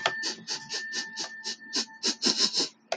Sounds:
Sniff